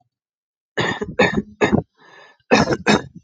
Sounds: Cough